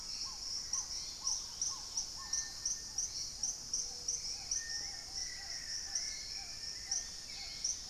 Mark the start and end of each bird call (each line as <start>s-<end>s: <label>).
0.0s-0.6s: unidentified bird
0.0s-7.9s: Black-tailed Trogon (Trogon melanurus)
0.0s-7.9s: Hauxwell's Thrush (Turdus hauxwelli)
0.0s-7.9s: Little Tinamou (Crypturellus soui)
0.9s-2.2s: Dusky-capped Greenlet (Pachysylvia hypoxantha)
3.5s-4.7s: Gray-fronted Dove (Leptotila rufaxilla)
4.3s-7.0s: Black-faced Antthrush (Formicarius analis)
6.8s-7.9s: Dusky-capped Greenlet (Pachysylvia hypoxantha)